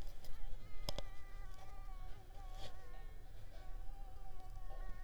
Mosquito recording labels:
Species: Mansonia africanus; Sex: female; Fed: unfed; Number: one; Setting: cup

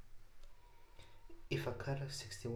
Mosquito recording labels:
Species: Anopheles arabiensis; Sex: female; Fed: unfed; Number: one; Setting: cup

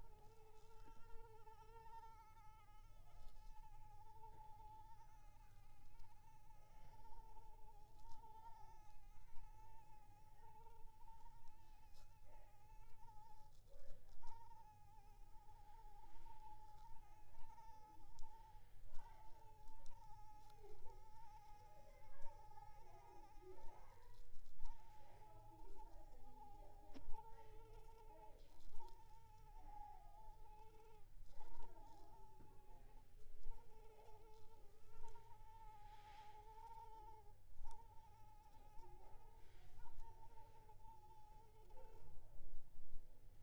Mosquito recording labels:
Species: Anopheles arabiensis; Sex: female; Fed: unfed; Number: one; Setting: cup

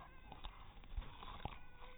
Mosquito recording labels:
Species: mosquito; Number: one; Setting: cup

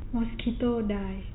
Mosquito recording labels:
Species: mosquito; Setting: cup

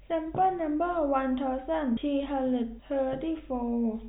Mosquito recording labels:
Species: no mosquito; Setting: cup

